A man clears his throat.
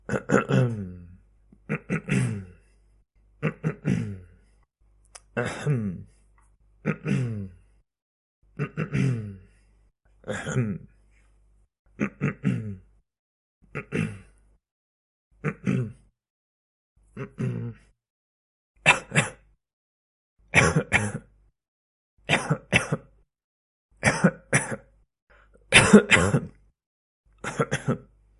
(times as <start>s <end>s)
0.1s 0.9s, 1.7s 2.6s, 3.4s 4.2s, 5.3s 6.1s, 6.8s 7.5s, 8.6s 9.3s, 10.3s 10.9s, 12.0s 12.8s, 13.7s 14.2s, 15.4s 15.9s, 17.1s 17.8s